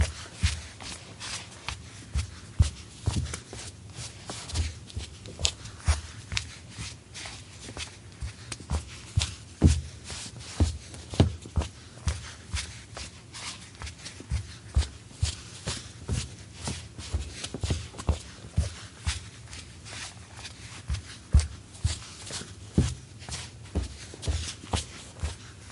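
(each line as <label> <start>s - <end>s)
Steady footsteps on wood accompanied by the rustling of socks. 0.0s - 25.7s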